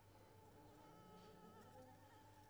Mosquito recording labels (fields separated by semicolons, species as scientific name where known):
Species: Anopheles squamosus; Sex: female; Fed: unfed; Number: one; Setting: cup